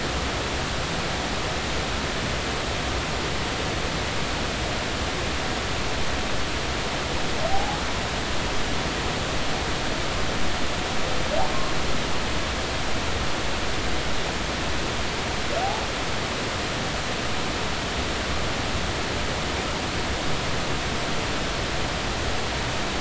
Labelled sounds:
7.5	7.8	humpback whale, 0.80 to 0.90 kHz

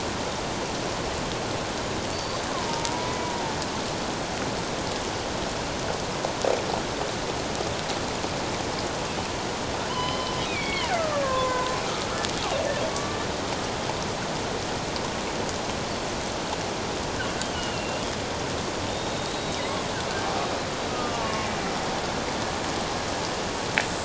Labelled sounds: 2.1	3.5	killer whale, Bigg's (transient), 0.84 to 4.8 kHz
9.9	11.7	killer whale, Bigg's (transient), 0.94 to 5.2 kHz
12.9	13.2	killer whale, Bigg's (transient), 1.1 to 1.2 kHz
17.5	18.1	killer whale, Bigg's (transient), 2.7 to 3.1 kHz
18.9	19.7	killer whale, Bigg's (transient), 3.5 to 4.0 kHz
20.9	21.5	killer whale, Bigg's (transient), 1.1 to 1.3 kHz

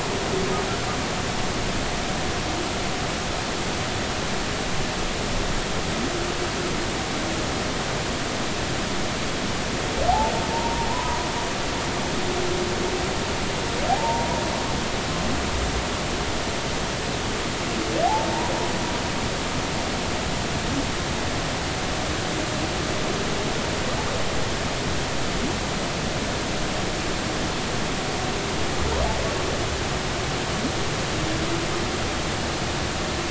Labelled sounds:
10.5	11.3	humpback whale, 0.86 to 1.1 kHz
13.9	14.3	humpback whale, 0.80 to 0.99 kHz

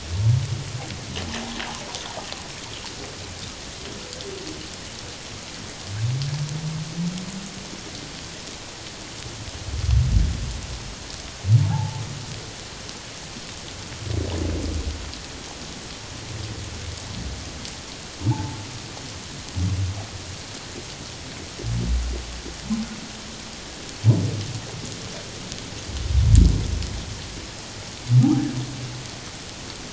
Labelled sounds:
11.6	12.0	humpback whale, 0.78 to 0.97 kHz
18.2	18.6	humpback whale, 0.78 to 1.0 kHz
28.2	28.5	humpback whale, 0.78 to 0.97 kHz

